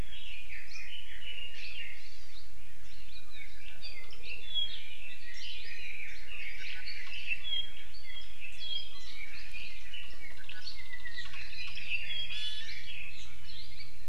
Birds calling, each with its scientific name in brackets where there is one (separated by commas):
Hawaii Amakihi (Chlorodrepanis virens), Red-billed Leiothrix (Leiothrix lutea), Apapane (Himatione sanguinea), Iiwi (Drepanis coccinea)